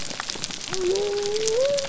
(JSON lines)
{"label": "biophony", "recorder": "SoundTrap 300"}